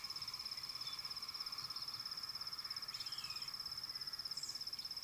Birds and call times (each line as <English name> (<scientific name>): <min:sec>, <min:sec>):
African Black-headed Oriole (Oriolus larvatus): 0:03.3